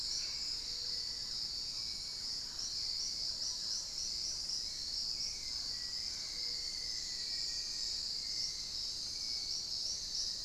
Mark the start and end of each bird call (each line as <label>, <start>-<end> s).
Mealy Parrot (Amazona farinosa), 0.0-4.5 s
Thrush-like Wren (Campylorhynchus turdinus), 0.0-4.6 s
Hauxwell's Thrush (Turdus hauxwelli), 0.0-10.4 s
unidentified bird, 0.0-0.6 s
Black-faced Antthrush (Formicarius analis), 5.3-8.0 s